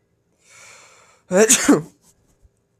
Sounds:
Sneeze